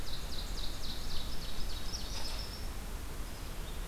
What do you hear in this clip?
Ovenbird, Red Squirrel